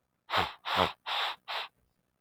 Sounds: Sniff